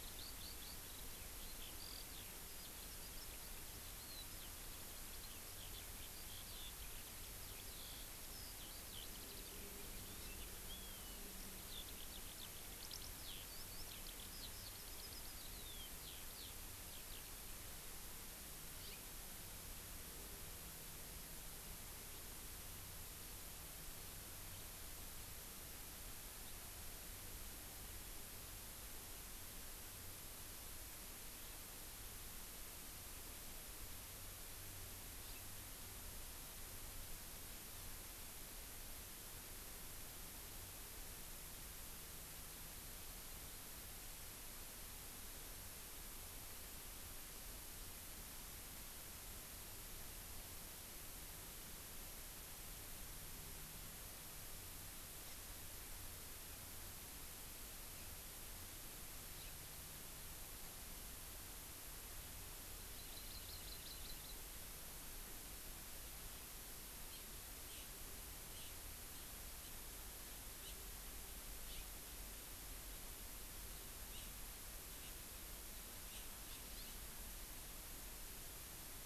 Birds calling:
House Finch (Haemorhous mexicanus), Eurasian Skylark (Alauda arvensis), Hawaii Amakihi (Chlorodrepanis virens)

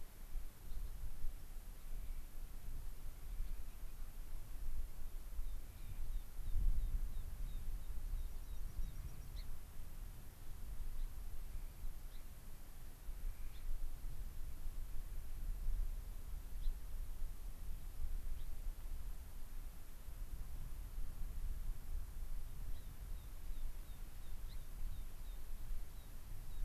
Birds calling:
Dark-eyed Junco (Junco hyemalis), American Pipit (Anthus rubescens), Gray-crowned Rosy-Finch (Leucosticte tephrocotis), Clark's Nutcracker (Nucifraga columbiana)

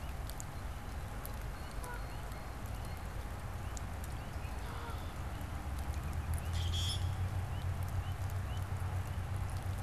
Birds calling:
Canada Goose (Branta canadensis), Blue Jay (Cyanocitta cristata), Red-winged Blackbird (Agelaius phoeniceus), Common Grackle (Quiscalus quiscula)

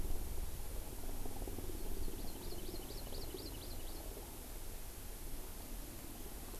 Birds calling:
Hawaii Amakihi (Chlorodrepanis virens)

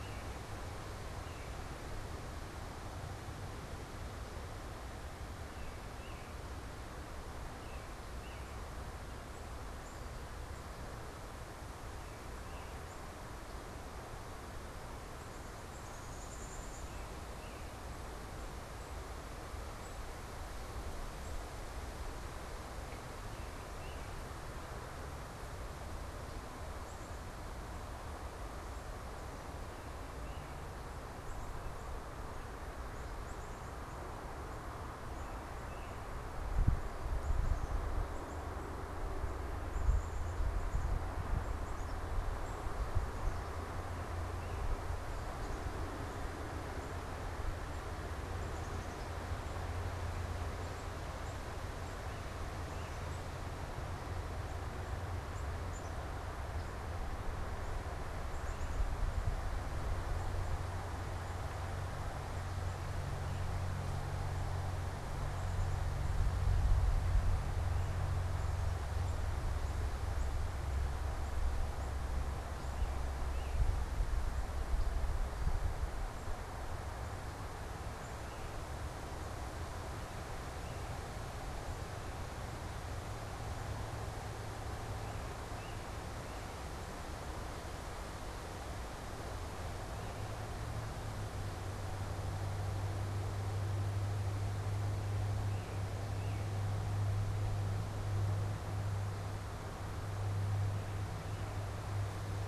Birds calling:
unidentified bird, Black-capped Chickadee (Poecile atricapillus)

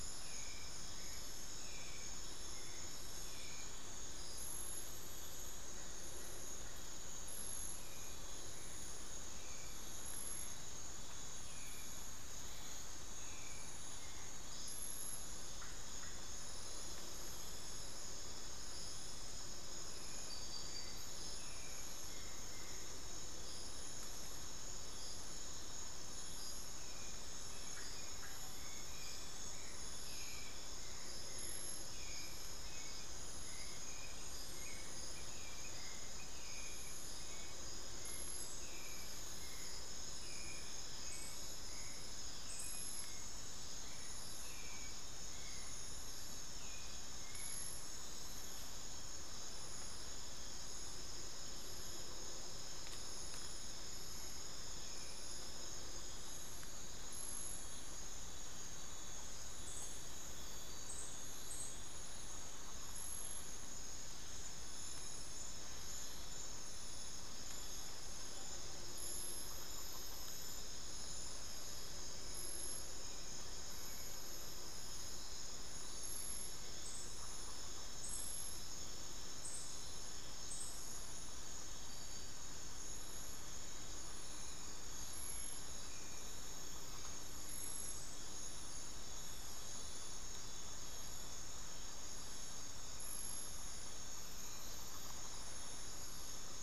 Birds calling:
Hauxwell's Thrush (Turdus hauxwelli), Screaming Piha (Lipaugus vociferans)

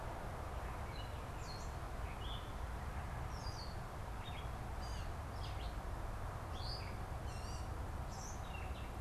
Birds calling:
Gray Catbird (Dumetella carolinensis)

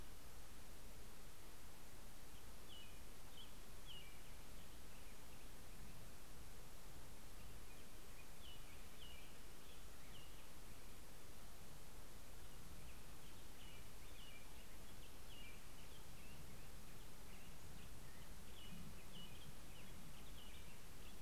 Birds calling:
American Robin (Turdus migratorius), Black-headed Grosbeak (Pheucticus melanocephalus)

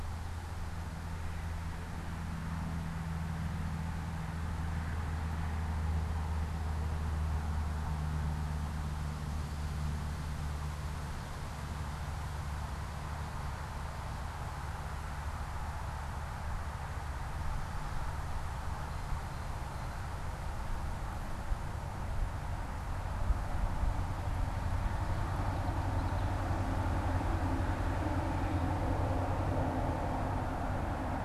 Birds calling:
Common Yellowthroat (Geothlypis trichas), Blue Jay (Cyanocitta cristata)

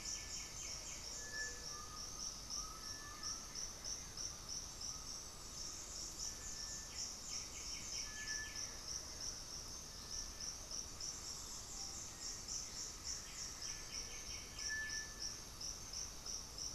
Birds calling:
Gray-fronted Dove (Leptotila rufaxilla), Undulated Tinamou (Crypturellus undulatus), White-winged Becard (Pachyramphus polychopterus), Cinereous Tinamou (Crypturellus cinereus), Black-faced Antthrush (Formicarius analis)

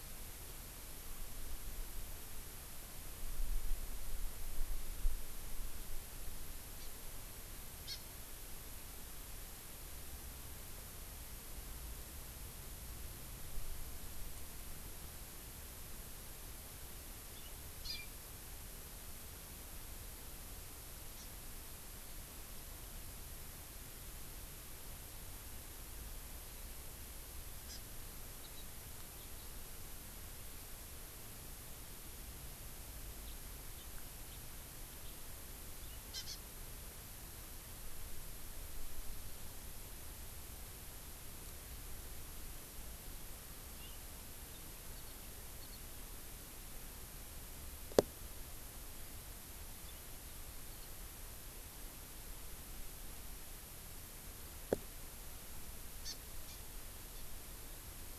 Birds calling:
Hawaii Amakihi (Chlorodrepanis virens), House Finch (Haemorhous mexicanus)

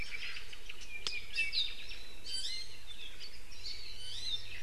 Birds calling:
Omao (Myadestes obscurus), Apapane (Himatione sanguinea), Iiwi (Drepanis coccinea)

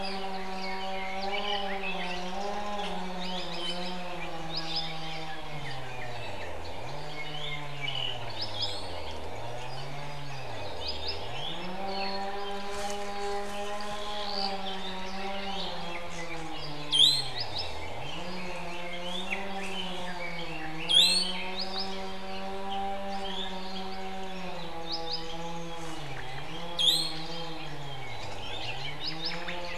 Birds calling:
Red-billed Leiothrix (Leiothrix lutea), Apapane (Himatione sanguinea), Iiwi (Drepanis coccinea), Omao (Myadestes obscurus)

